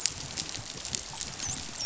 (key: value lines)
label: biophony, dolphin
recorder: SoundTrap 500